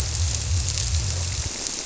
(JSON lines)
{"label": "biophony", "recorder": "SoundTrap 300"}